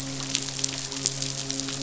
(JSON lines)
{"label": "biophony, midshipman", "recorder": "SoundTrap 500"}